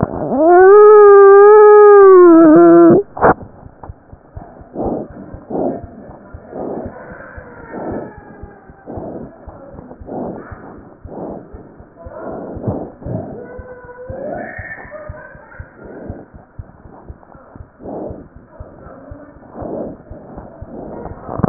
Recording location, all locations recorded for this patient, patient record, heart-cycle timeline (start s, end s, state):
aortic valve (AV)
aortic valve (AV)+mitral valve (MV)
#Age: Child
#Sex: Female
#Height: 75.0 cm
#Weight: 10.915 kg
#Pregnancy status: False
#Murmur: Unknown
#Murmur locations: nan
#Most audible location: nan
#Systolic murmur timing: nan
#Systolic murmur shape: nan
#Systolic murmur grading: nan
#Systolic murmur pitch: nan
#Systolic murmur quality: nan
#Diastolic murmur timing: nan
#Diastolic murmur shape: nan
#Diastolic murmur grading: nan
#Diastolic murmur pitch: nan
#Diastolic murmur quality: nan
#Outcome: Abnormal
#Campaign: 2015 screening campaign
0.00	15.32	unannotated
15.32	15.40	S1
15.40	15.56	systole
15.56	15.65	S2
15.65	15.83	diastole
15.83	15.96	S1
15.96	16.06	systole
16.06	16.16	S2
16.16	16.32	diastole
16.32	16.40	S1
16.40	16.56	systole
16.56	16.65	S2
16.65	16.82	diastole
16.82	16.90	S1
16.90	17.07	systole
17.07	17.15	S2
17.15	17.31	diastole
17.31	17.41	S1
17.41	17.56	systole
17.56	17.66	S2
17.66	17.82	diastole
17.82	18.34	unannotated
18.34	18.43	S1
18.43	18.58	systole
18.58	18.66	S2
18.66	18.83	diastole
18.83	18.94	S1
18.94	19.09	systole
19.09	19.18	S2
19.18	19.36	diastole
19.36	20.09	S1
20.09	20.17	S2
20.17	20.33	diastole
20.33	20.43	S1
20.43	20.60	systole
20.60	20.68	S2
20.68	21.49	unannotated